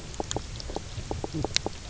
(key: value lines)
label: biophony, knock croak
recorder: SoundTrap 300